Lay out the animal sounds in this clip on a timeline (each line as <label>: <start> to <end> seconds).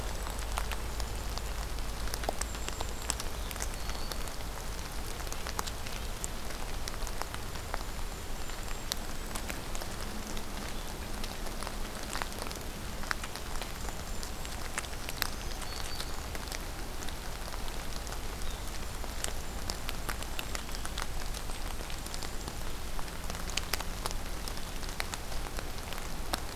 Golden-crowned Kinglet (Regulus satrapa): 0.0 to 1.4 seconds
Golden-crowned Kinglet (Regulus satrapa): 2.2 to 3.3 seconds
Black-throated Green Warbler (Setophaga virens): 3.3 to 4.5 seconds
Golden-crowned Kinglet (Regulus satrapa): 7.5 to 9.5 seconds
Golden-crowned Kinglet (Regulus satrapa): 13.3 to 14.7 seconds
Black-throated Green Warbler (Setophaga virens): 15.0 to 16.3 seconds
Golden-crowned Kinglet (Regulus satrapa): 18.4 to 22.5 seconds